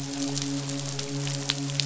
{"label": "biophony, midshipman", "recorder": "SoundTrap 500"}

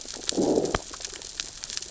{"label": "biophony, growl", "recorder": "SoundTrap 600 or HydroMoth"}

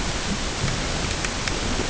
{"label": "ambient", "recorder": "HydroMoth"}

